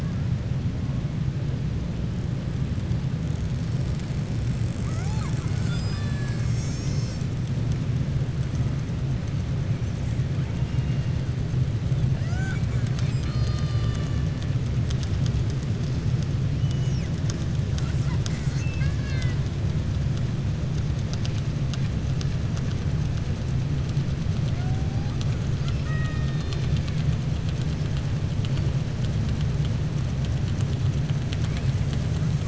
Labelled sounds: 17.6	19.4	killer whale, southern resident, 1.0 to 7.9 kHz

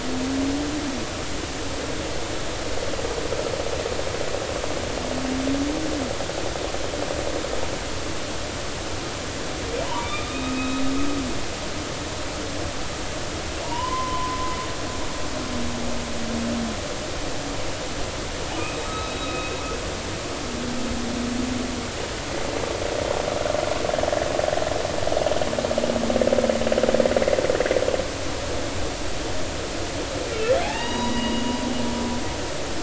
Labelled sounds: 9.8	10.8	humpback whale, 0.86 to 3.9 kHz
13.6	14.6	humpback whale, 0.86 to 3.1 kHz
18.8	19.5	humpback whale, 1.2 to 3.9 kHz
30.6	31.5	humpback whale, 0.80 to 5.9 kHz

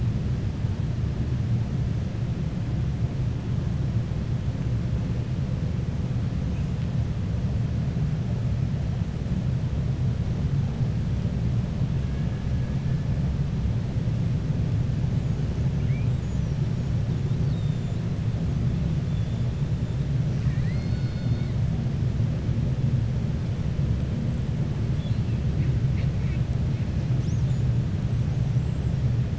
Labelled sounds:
15.7	16.1	killer whale, 1.4 to 3.2 kHz
20.3	21.5	killer whale, 1.2 to 5.2 kHz
24.9	25.3	killer whale, 2.6 to 4.6 kHz

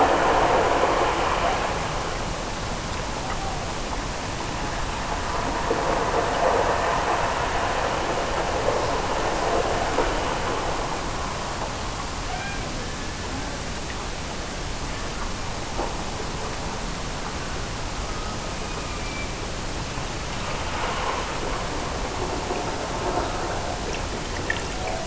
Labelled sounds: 12.2	13.4	killer whale, Bigg's (transient), Gulf of Alaska transient, 0.42 to 3.3 kHz

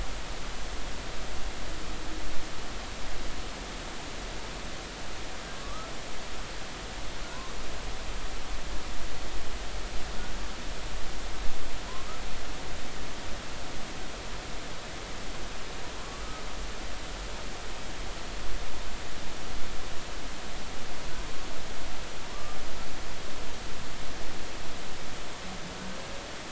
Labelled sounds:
5.5	5.9	humpback whale, 1.1 to 1.4 kHz
16.0	16.2	humpback whale, 1.0 to 1.2 kHz

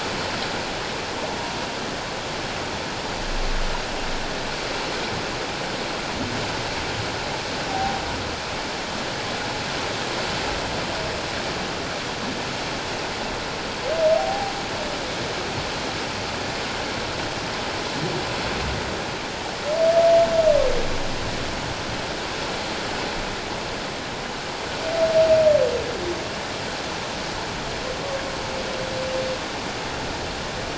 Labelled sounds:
7.7	8.0	humpback whale, 0.78 to 0.84 kHz
14.2	14.5	humpback whale, 0.78 to 0.88 kHz

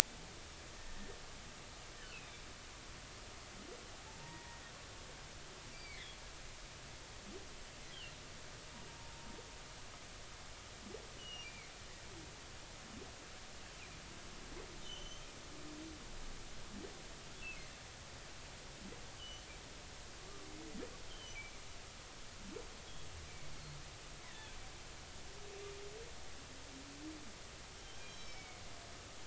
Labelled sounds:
2.0	2.2	humpback whale, 1.3 to 1.9 kHz
4.2	4.6	humpback whale, 0.86 to 0.99 kHz
5.7	6.1	humpback whale, 1.7 to 2.4 kHz
8.9	9.2	humpback whale, 0.86 to 1.0 kHz
11.2	11.7	humpback whale, 2.1 to 3.0 kHz
14.8	15.3	humpback whale, 2.8 to 6.3 kHz
19.2	19.5	humpback whale, 2.8 to 3.2 kHz
21.1	21.6	humpback whale, 2.2 to 3.4 kHz
23.2	23.8	humpback whale, 2.1 to 4.4 kHz
24.2	24.5	humpback whale, 1.7 to 2.3 kHz
27.7	28.6	humpback whale, 2.1 to 6.4 kHz

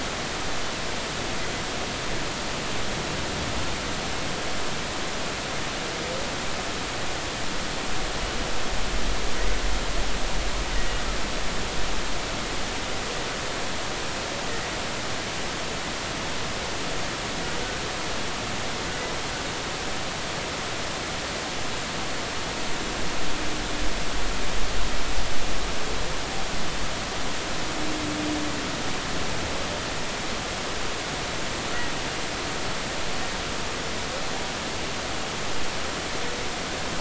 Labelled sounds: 10.7	11.0	humpback whale, 1.8 to 2.0 kHz

